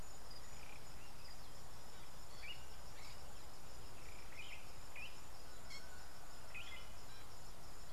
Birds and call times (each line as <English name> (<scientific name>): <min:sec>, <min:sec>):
Fork-tailed Drongo (Dicrurus adsimilis): 0:05.7